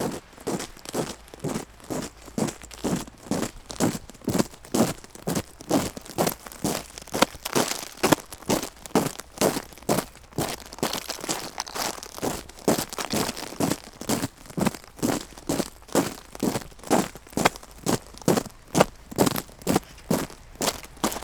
Is the person walking outdoors?
yes